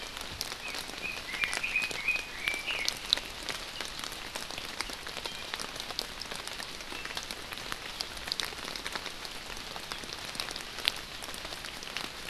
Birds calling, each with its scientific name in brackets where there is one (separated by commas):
Red-billed Leiothrix (Leiothrix lutea), Iiwi (Drepanis coccinea)